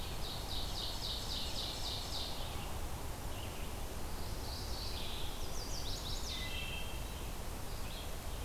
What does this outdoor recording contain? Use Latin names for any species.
Seiurus aurocapilla, Vireo olivaceus, Geothlypis philadelphia, Setophaga pensylvanica, Hylocichla mustelina